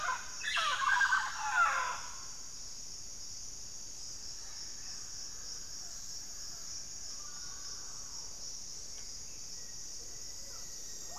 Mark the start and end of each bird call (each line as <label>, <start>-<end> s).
Mealy Parrot (Amazona farinosa), 0.0-11.2 s
White-rumped Sirystes (Sirystes albocinereus), 4.4-11.2 s
Black-faced Antthrush (Formicarius analis), 9.3-11.2 s